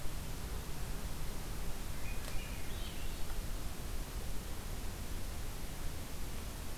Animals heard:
Swainson's Thrush (Catharus ustulatus)

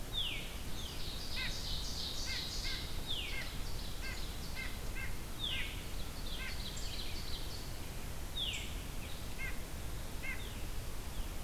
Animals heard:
Ovenbird (Seiurus aurocapilla), White-breasted Nuthatch (Sitta carolinensis), Veery (Catharus fuscescens)

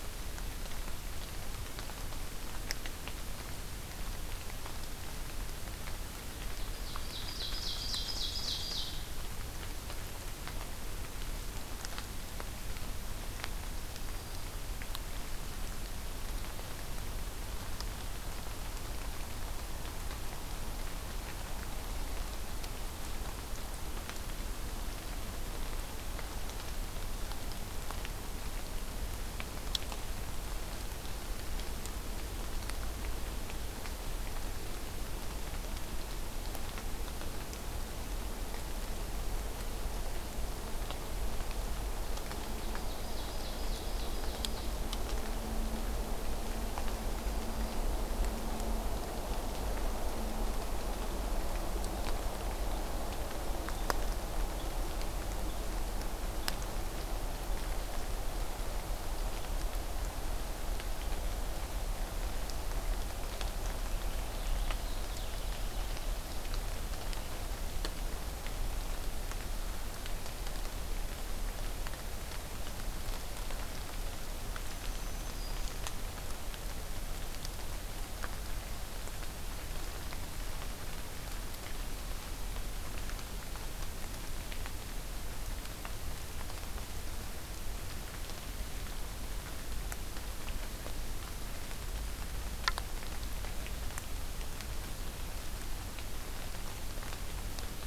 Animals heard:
Ovenbird (Seiurus aurocapilla), Purple Finch (Haemorhous purpureus), Black-throated Green Warbler (Setophaga virens)

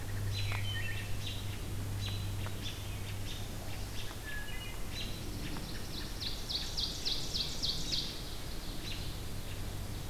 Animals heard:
Ovenbird (Seiurus aurocapilla), Pine Warbler (Setophaga pinus), Hermit Thrush (Catharus guttatus), American Robin (Turdus migratorius)

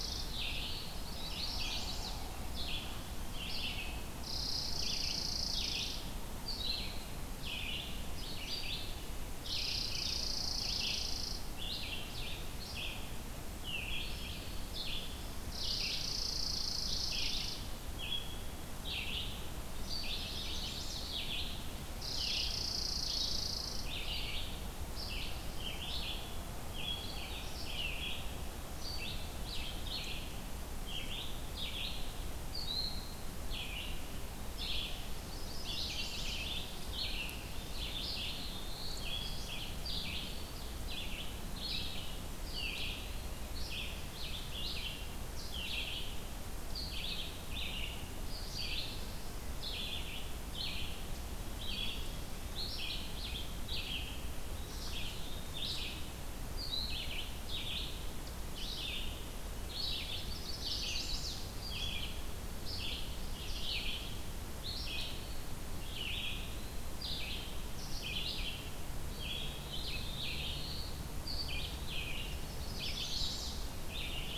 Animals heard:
Chipping Sparrow (Spizella passerina), Red-eyed Vireo (Vireo olivaceus), Chimney Swift (Chaetura pelagica), Eastern Wood-Pewee (Contopus virens), Black-throated Blue Warbler (Setophaga caerulescens)

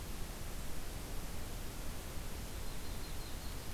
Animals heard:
Yellow-rumped Warbler (Setophaga coronata)

